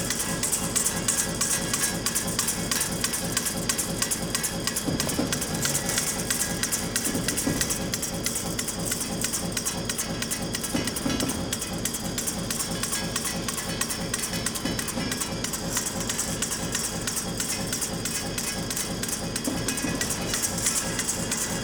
What is passing nearby?
train